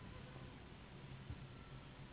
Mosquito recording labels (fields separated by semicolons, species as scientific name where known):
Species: Anopheles gambiae s.s.; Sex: female; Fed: unfed; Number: one; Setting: insect culture